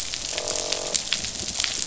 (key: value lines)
label: biophony, croak
recorder: SoundTrap 500